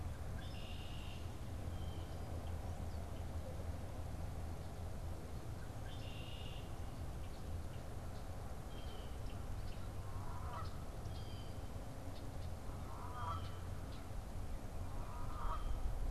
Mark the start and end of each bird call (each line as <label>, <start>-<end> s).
Red-winged Blackbird (Agelaius phoeniceus), 0.0-1.3 s
Blue Jay (Cyanocitta cristata), 1.5-2.2 s
Red-winged Blackbird (Agelaius phoeniceus), 5.3-6.8 s
Blue Jay (Cyanocitta cristata), 8.4-16.0 s
Canada Goose (Branta canadensis), 9.7-15.8 s